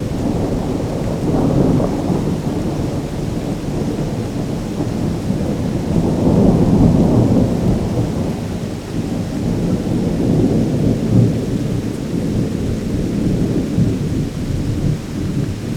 is there a storm outside?
yes